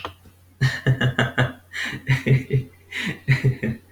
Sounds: Laughter